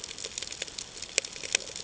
{"label": "ambient", "recorder": "HydroMoth"}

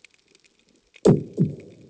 {"label": "anthrophony, bomb", "recorder": "HydroMoth"}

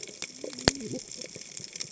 {"label": "biophony, cascading saw", "recorder": "HydroMoth"}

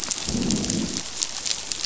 {"label": "biophony, growl", "recorder": "SoundTrap 500"}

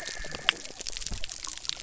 {"label": "biophony", "recorder": "SoundTrap 300"}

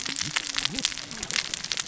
{"label": "biophony, cascading saw", "recorder": "SoundTrap 600 or HydroMoth"}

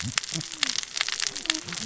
{"label": "biophony, cascading saw", "recorder": "SoundTrap 600 or HydroMoth"}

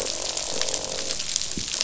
{"label": "biophony, croak", "recorder": "SoundTrap 500"}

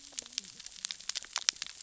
{"label": "biophony, cascading saw", "recorder": "SoundTrap 600 or HydroMoth"}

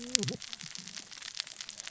{"label": "biophony, cascading saw", "recorder": "SoundTrap 600 or HydroMoth"}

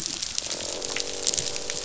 {"label": "biophony, croak", "recorder": "SoundTrap 500"}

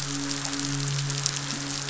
{"label": "biophony, midshipman", "recorder": "SoundTrap 500"}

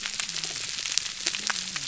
{"label": "biophony, whup", "recorder": "SoundTrap 300"}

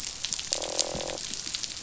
{"label": "biophony, croak", "recorder": "SoundTrap 500"}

